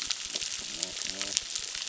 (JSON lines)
{"label": "biophony", "recorder": "SoundTrap 600"}